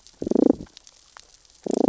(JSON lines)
{"label": "biophony, damselfish", "recorder": "SoundTrap 600 or HydroMoth"}